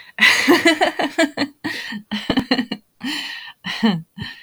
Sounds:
Laughter